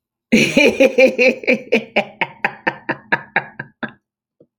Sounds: Laughter